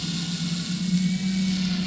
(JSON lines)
{"label": "anthrophony, boat engine", "recorder": "SoundTrap 500"}